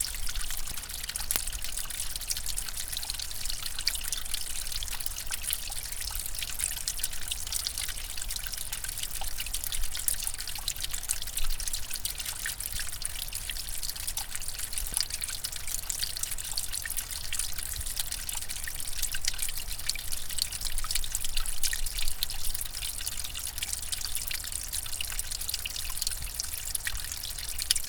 Can the element heard here leave someone wet?
yes